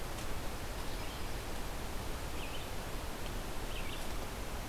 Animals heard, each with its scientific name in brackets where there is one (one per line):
Red-eyed Vireo (Vireo olivaceus)